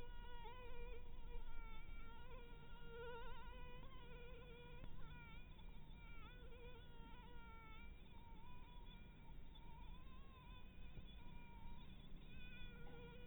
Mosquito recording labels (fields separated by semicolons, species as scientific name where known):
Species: Anopheles dirus; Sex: female; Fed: blood-fed; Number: one; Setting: cup